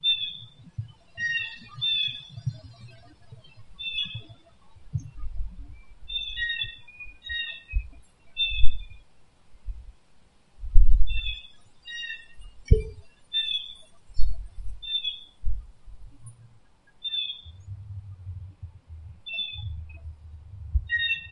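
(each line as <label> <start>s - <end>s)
Birds chirping. 0.0s - 21.3s
A rooster crows in the distance. 12.5s - 13.3s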